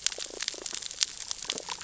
{"label": "biophony, damselfish", "recorder": "SoundTrap 600 or HydroMoth"}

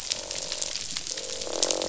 {"label": "biophony, croak", "recorder": "SoundTrap 500"}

